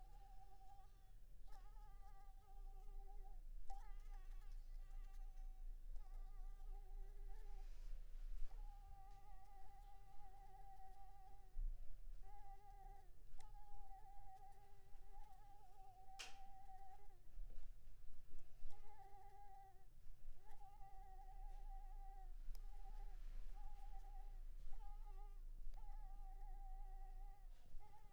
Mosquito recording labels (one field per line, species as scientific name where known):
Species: Anopheles squamosus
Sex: female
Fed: unfed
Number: one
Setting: cup